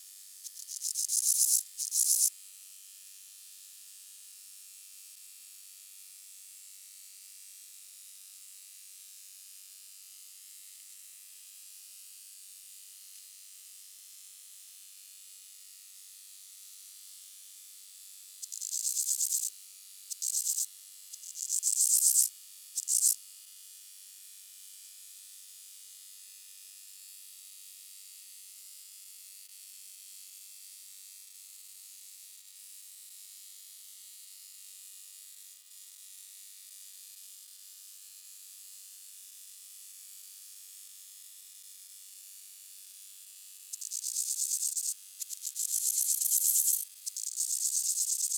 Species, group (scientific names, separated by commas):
Chorthippus bornhalmi, Orthoptera